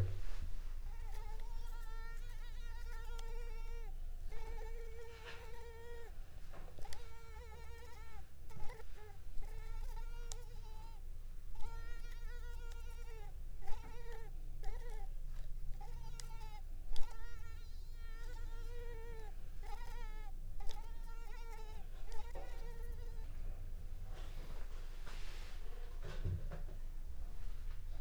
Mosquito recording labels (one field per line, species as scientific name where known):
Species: Culex pipiens complex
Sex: female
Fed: unfed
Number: one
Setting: cup